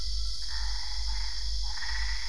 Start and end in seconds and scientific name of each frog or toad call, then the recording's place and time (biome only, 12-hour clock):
0.4	2.2	Boana albopunctata
Cerrado, 1:00am